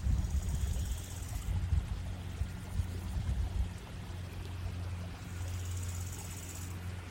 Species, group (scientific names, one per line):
Chorthippus biguttulus
Orthoptera